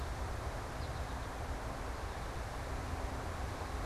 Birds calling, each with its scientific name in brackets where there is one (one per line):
American Goldfinch (Spinus tristis)